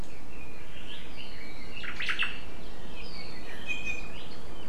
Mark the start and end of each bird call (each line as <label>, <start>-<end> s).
Red-billed Leiothrix (Leiothrix lutea), 0.1-2.9 s
Omao (Myadestes obscurus), 1.7-2.4 s
Iiwi (Drepanis coccinea), 3.6-4.2 s